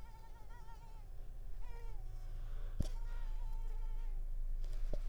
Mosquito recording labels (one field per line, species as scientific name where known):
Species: Mansonia africanus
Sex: female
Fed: unfed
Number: one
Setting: cup